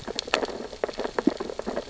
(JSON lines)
{"label": "biophony, sea urchins (Echinidae)", "recorder": "SoundTrap 600 or HydroMoth"}